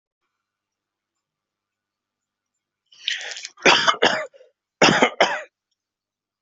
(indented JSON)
{
  "expert_labels": [
    {
      "quality": "good",
      "cough_type": "dry",
      "dyspnea": false,
      "wheezing": false,
      "stridor": false,
      "choking": false,
      "congestion": false,
      "nothing": true,
      "diagnosis": "upper respiratory tract infection",
      "severity": "mild"
    }
  ],
  "age": 43,
  "gender": "male",
  "respiratory_condition": false,
  "fever_muscle_pain": false,
  "status": "COVID-19"
}